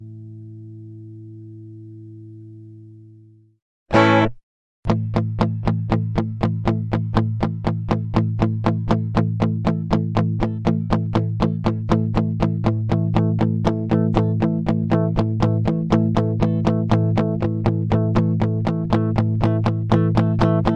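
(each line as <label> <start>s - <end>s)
An electric hum is heard. 0.0s - 3.8s
An electric guitar plays a single strum. 3.8s - 4.4s
An electric guitar plays two chords repeatedly. 4.9s - 20.8s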